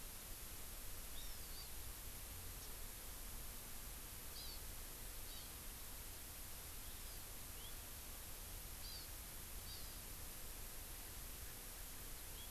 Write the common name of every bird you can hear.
Hawaii Amakihi, Japanese Bush Warbler